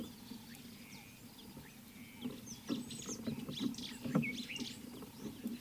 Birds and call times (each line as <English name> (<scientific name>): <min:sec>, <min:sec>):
White-browed Sparrow-Weaver (Plocepasser mahali): 0:03.8
Common Bulbul (Pycnonotus barbatus): 0:04.2